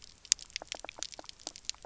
{"label": "biophony, pulse", "recorder": "SoundTrap 300"}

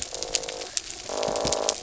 {"label": "biophony", "recorder": "SoundTrap 300"}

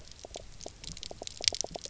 {"label": "biophony, pulse", "recorder": "SoundTrap 300"}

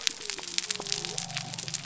{"label": "biophony", "recorder": "SoundTrap 300"}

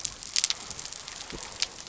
{"label": "biophony", "recorder": "SoundTrap 300"}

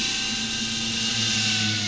{"label": "anthrophony, boat engine", "recorder": "SoundTrap 500"}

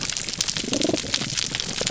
{"label": "biophony, damselfish", "recorder": "SoundTrap 300"}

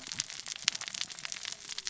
{"label": "biophony, cascading saw", "recorder": "SoundTrap 600 or HydroMoth"}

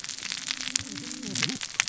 {"label": "biophony, cascading saw", "recorder": "SoundTrap 600 or HydroMoth"}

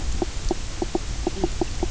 {"label": "biophony, knock croak", "recorder": "SoundTrap 300"}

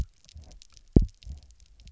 {"label": "biophony, double pulse", "recorder": "SoundTrap 300"}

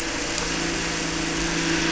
{"label": "anthrophony, boat engine", "recorder": "SoundTrap 300"}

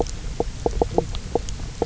{"label": "biophony, knock croak", "recorder": "SoundTrap 300"}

